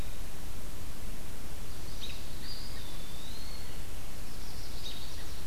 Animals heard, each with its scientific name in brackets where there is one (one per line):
Chestnut-sided Warbler (Setophaga pensylvanica)
Eastern Wood-Pewee (Contopus virens)
American Robin (Turdus migratorius)